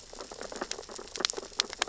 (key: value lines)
label: biophony, sea urchins (Echinidae)
recorder: SoundTrap 600 or HydroMoth